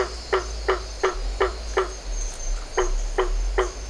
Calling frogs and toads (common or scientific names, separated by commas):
blacksmith tree frog